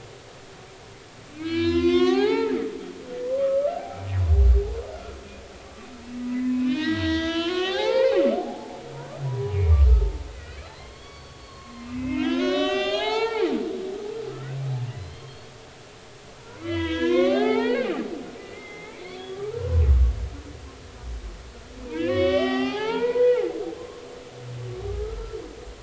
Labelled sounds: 1.3	4.1	humpback whale, 0.80 to 6.9 kHz
6.3	8.8	humpback whale, 0.80 to 6.4 kHz
9.3	15.5	humpback whale, 0.80 to 6.9 kHz
16.6	18.1	humpback whale, 0.80 to 4.5 kHz
19.3	20.0	humpback whale, 0.93 to 2.4 kHz
21.9	24.1	humpback whale, 0.80 to 5.8 kHz
24.9	25.4	humpback whale, 1.1 to 1.4 kHz

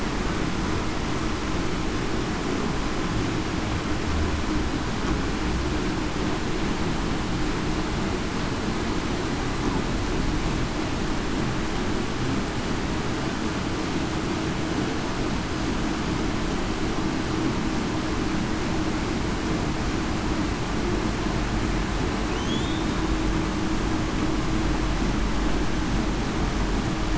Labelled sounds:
22.4	22.8	killer whale, Bigg's (transient), 3.2 to 3.7 kHz

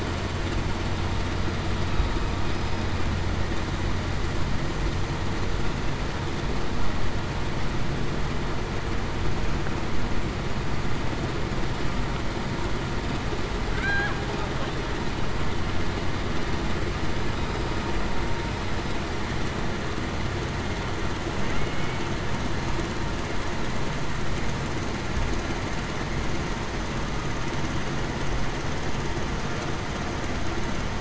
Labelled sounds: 21.5	22.0	killer whale, Bigg's (transient), 2.1 to 2.3 kHz

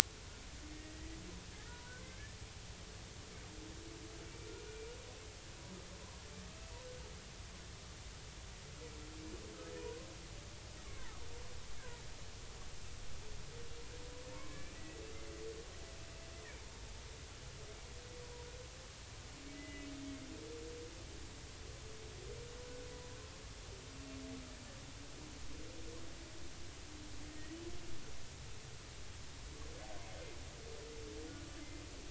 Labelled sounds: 0.7	1.2	humpback whale, 1.8 to 2.0 kHz
10.8	11.2	humpback whale, 0.80 to 1.2 kHz
14.4	15.0	humpback whale, 1.9 to 2.4 kHz
19.5	19.9	humpback whale, 2.0 to 2.9 kHz
27.3	27.5	humpback whale, 1.8 to 2.0 kHz

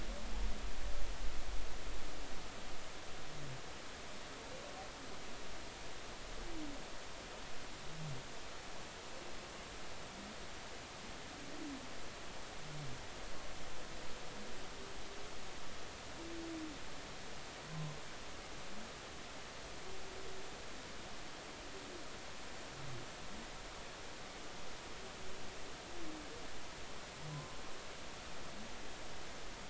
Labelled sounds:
17.7	17.9	humpback whale, 0.99 to 1.1 kHz
27.3	27.6	humpback whale, 0.96 to 1.1 kHz

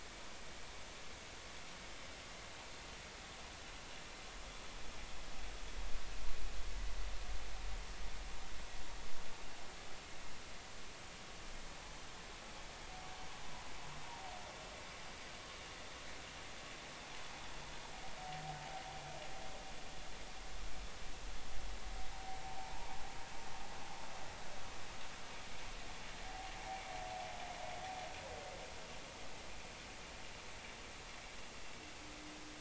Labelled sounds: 22.7	23.0	humpback whale, 0.80 to 0.99 kHz

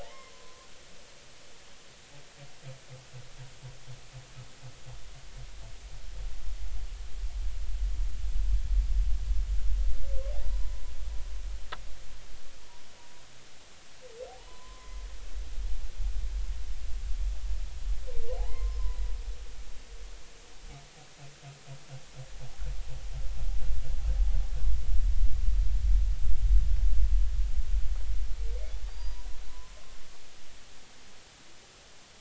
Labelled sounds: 0.0	0.7	humpback whale, 0.80 to 2.2 kHz
10.4	10.8	humpback whale, 0.90 to 1.1 kHz
14.5	15.0	humpback whale, 0.93 to 1.1 kHz
18.4	19.0	humpback whale, 0.80 to 5.2 kHz
28.9	30.0	humpback whale, 0.90 to 4.9 kHz

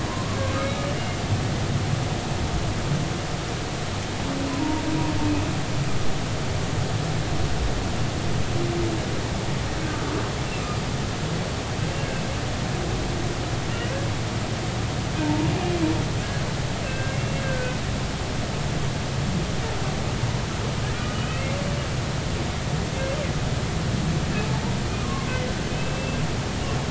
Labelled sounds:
0.1	0.9	humpback whale, 0.93 to 2.3 kHz
4.5	4.8	humpback whale, 0.90 to 1.1 kHz
15.2	15.5	humpback whale, 0.86 to 0.99 kHz
16.8	17.8	humpback whale, 1.5 to 2.8 kHz
21.0	21.5	humpback whale, 2.4 to 3.1 kHz
25.0	26.2	humpback whale, 1.0 to 2.7 kHz

